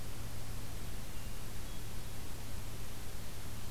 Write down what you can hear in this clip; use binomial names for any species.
Catharus guttatus